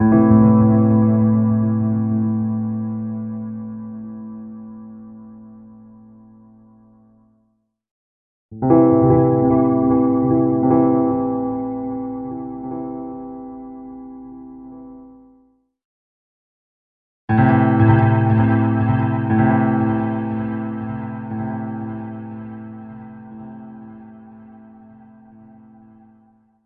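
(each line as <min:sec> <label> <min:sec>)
0:00.0 Piano chords fading out. 0:05.5
0:08.5 Piano chords fading out. 0:15.4
0:17.3 Piano chords fading out. 0:24.4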